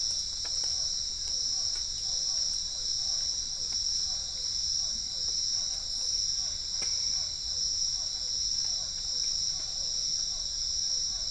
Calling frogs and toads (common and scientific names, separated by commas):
Physalaemus cuvieri, Boana albopunctata